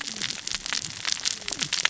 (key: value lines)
label: biophony, cascading saw
recorder: SoundTrap 600 or HydroMoth